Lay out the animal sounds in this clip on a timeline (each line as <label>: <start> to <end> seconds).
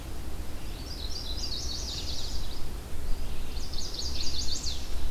Chestnut-sided Warbler (Setophaga pensylvanica): 0.3 to 2.4 seconds
Chestnut-sided Warbler (Setophaga pensylvanica): 3.4 to 4.8 seconds